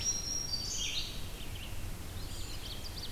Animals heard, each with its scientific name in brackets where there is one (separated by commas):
Red-eyed Vireo (Vireo olivaceus), Black-throated Green Warbler (Setophaga virens), Ovenbird (Seiurus aurocapilla), Eastern Wood-Pewee (Contopus virens)